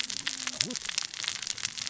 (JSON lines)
{"label": "biophony, cascading saw", "recorder": "SoundTrap 600 or HydroMoth"}